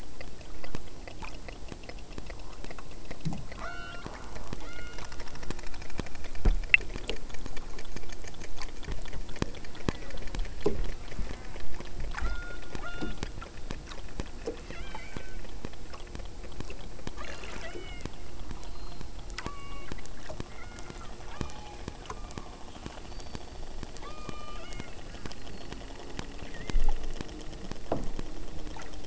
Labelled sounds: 3.5	4.2	killer whale, southern Alaska resident, 0.34 to 5.8 kHz
4.6	5.1	killer whale, southern Alaska resident, 0.61 to 5.1 kHz
9.7	10.5	killer whale, southern Alaska resident, 0.50 to 2.8 kHz
10.9	11.9	killer whale, southern Alaska resident, 0.25 to 2.5 kHz
12.2	13.3	killer whale, southern Alaska resident, 0.54 to 5.1 kHz
14.4	15.5	killer whale, southern Alaska resident, 0.57 to 8.0 kHz
17.1	18.2	killer whale, southern Alaska resident, 0.52 to 8.0 kHz
19.4	20.1	killer whale, southern Alaska resident, 0.59 to 6.4 kHz
20.5	22.6	killer whale, southern Alaska resident, 0.48 to 5.1 kHz
24.0	25.0	killer whale, southern Alaska resident, 0.71 to 8.0 kHz
26.4	27.1	killer whale, southern Alaska resident, 1.2 to 2.4 kHz

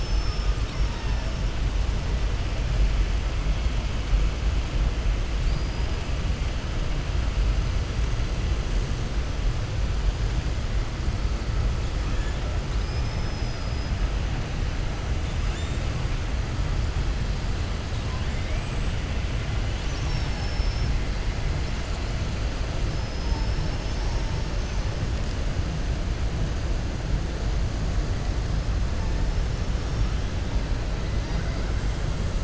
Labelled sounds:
5.4	5.9	killer whale, southern resident, 3.8 to 5.0 kHz
12.7	13.9	killer whale, southern resident, 3.8 to 5.9 kHz
22.9	23.7	killer whale, southern resident, 4.2 to 5.4 kHz

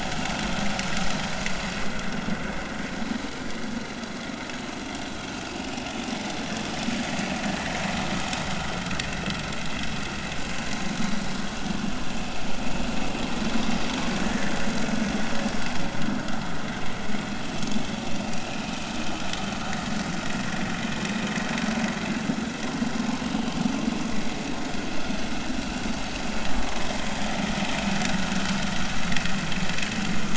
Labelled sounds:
1.5	1.8	vessel noise, 0.99 to 1.2 kHz
14.2	14.5	vessel noise, 1.7 to 2.0 kHz
18.2	18.6	vessel noise, 2.3 to 2.8 kHz

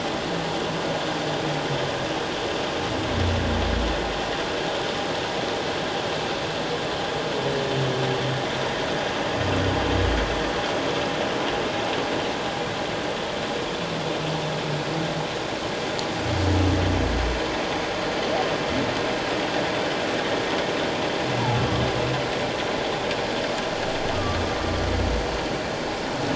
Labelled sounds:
24.1	24.6	humpback whale, 1.1 to 1.3 kHz

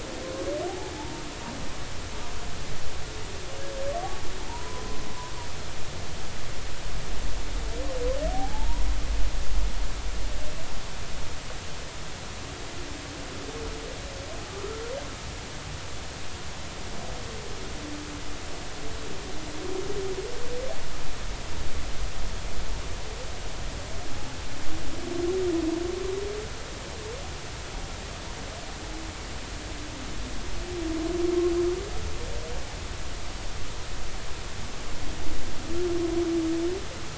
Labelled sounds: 0.7	1.2	humpback whale, 0.80 to 0.96 kHz
4.5	5.0	humpback whale, 0.86 to 1.1 kHz
8.3	8.9	humpback whale, 0.80 to 1.0 kHz

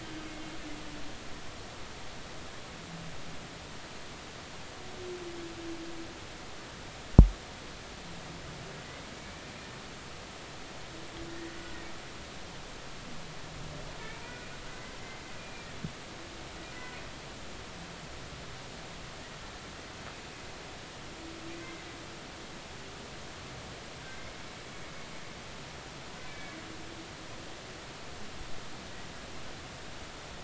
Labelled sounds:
9.2	9.4	humpback whale, 2.2 to 2.4 kHz
15.4	15.7	humpback whale, 2.3 to 2.5 kHz
26.3	26.6	humpback whale, 1.6 to 2.4 kHz

